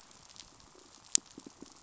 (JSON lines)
{"label": "biophony, pulse", "recorder": "SoundTrap 500"}